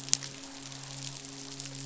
{"label": "biophony, midshipman", "recorder": "SoundTrap 500"}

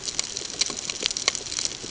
{"label": "ambient", "recorder": "HydroMoth"}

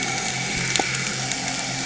{"label": "anthrophony, boat engine", "recorder": "HydroMoth"}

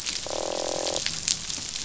{"label": "biophony, croak", "recorder": "SoundTrap 500"}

